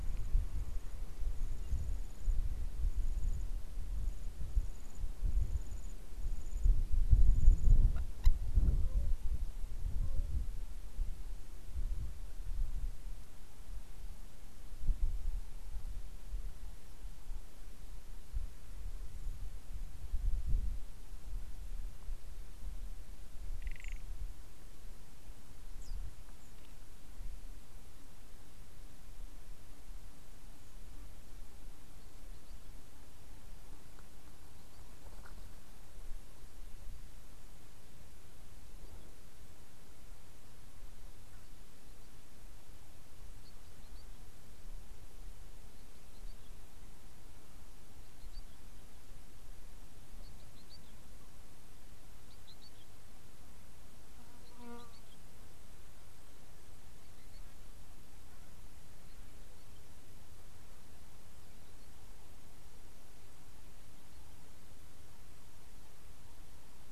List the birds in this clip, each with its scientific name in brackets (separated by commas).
Quailfinch (Ortygospiza atricollis)